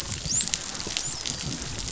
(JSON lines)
{"label": "biophony, dolphin", "recorder": "SoundTrap 500"}